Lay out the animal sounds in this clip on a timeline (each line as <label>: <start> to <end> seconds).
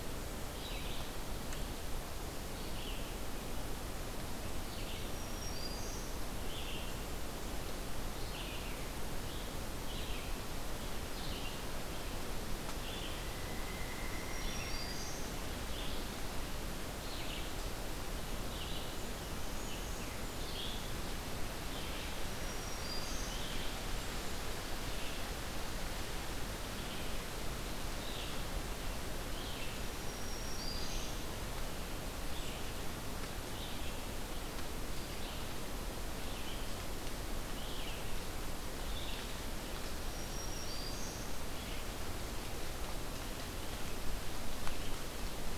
Red-eyed Vireo (Vireo olivaceus): 0.0 to 45.6 seconds
Black-throated Green Warbler (Setophaga virens): 5.0 to 6.2 seconds
unidentified call: 13.1 to 15.2 seconds
Black-throated Green Warbler (Setophaga virens): 14.2 to 15.3 seconds
Black-capped Chickadee (Poecile atricapillus): 18.8 to 20.7 seconds
Black-throated Green Warbler (Setophaga virens): 22.2 to 23.4 seconds
Black-throated Green Warbler (Setophaga virens): 29.9 to 31.2 seconds
Black-throated Green Warbler (Setophaga virens): 39.9 to 41.3 seconds